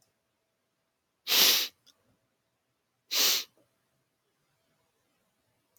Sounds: Sniff